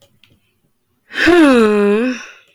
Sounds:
Sigh